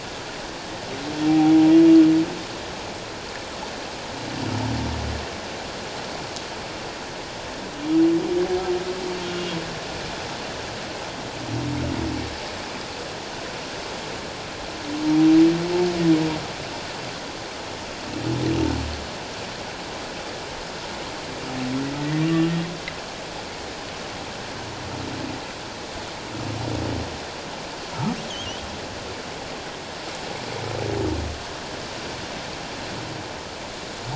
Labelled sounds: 1.3	1.5	humpback whale, 0.78 to 0.84 kHz
9.3	9.6	humpback whale, 2.7 to 2.9 kHz
22.1	22.4	humpback whale, 1.8 to 2.0 kHz

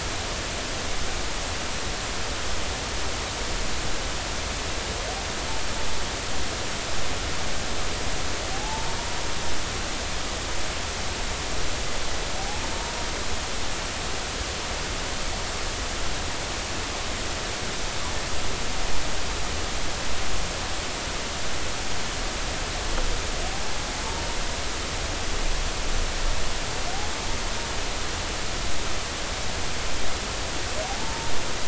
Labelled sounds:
8.5	9.0	humpback whale, 0.80 to 0.99 kHz
12.4	12.6	humpback whale, 0.80 to 0.93 kHz
31.0	31.3	humpback whale, 0.86 to 0.96 kHz

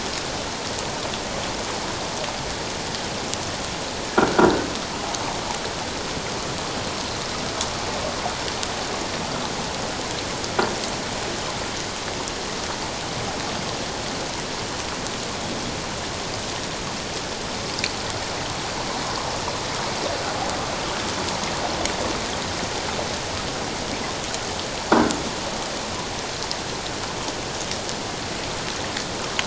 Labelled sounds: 4.2	4.5	croaking sound likely from a nearby submerged object, 1.3 to 1.6 kHz

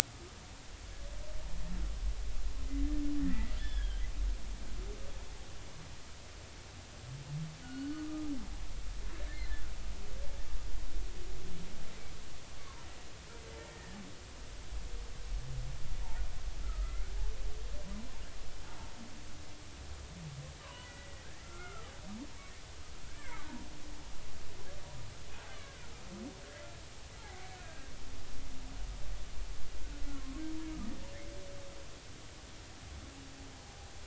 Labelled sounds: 3.2	4.0	humpback whale, 1.5 to 3.6 kHz
7.6	8.3	humpback whale, 1.2 to 3.0 kHz
12.6	12.9	humpback whale, 0.90 to 1.2 kHz
13.6	14.0	humpback whale, 1.7 to 2.0 kHz
16.6	17.1	humpback whale, 1.2 to 1.6 kHz
20.6	21.9	humpback whale, 0.93 to 2.1 kHz
23.1	23.5	humpback whale, 1.9 to 2.4 kHz
25.5	25.9	humpback whale, 1.3 to 3.0 kHz
27.2	27.9	humpback whale, 0.80 to 1.7 kHz
30.1	30.4	humpback whale, 0.99 to 1.2 kHz

